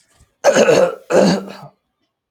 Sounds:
Throat clearing